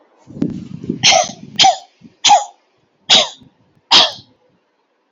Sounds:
Laughter